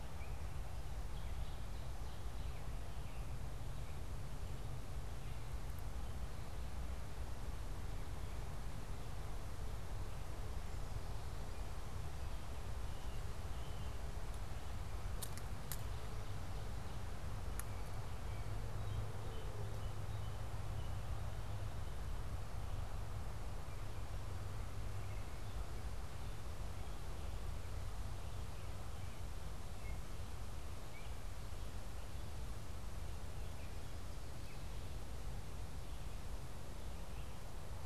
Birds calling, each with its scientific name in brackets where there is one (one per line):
American Robin (Turdus migratorius)
Ovenbird (Seiurus aurocapilla)
Gray Catbird (Dumetella carolinensis)